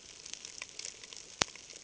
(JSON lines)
{"label": "ambient", "recorder": "HydroMoth"}